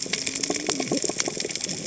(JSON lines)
{"label": "biophony, cascading saw", "recorder": "HydroMoth"}